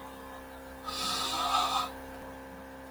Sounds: Sniff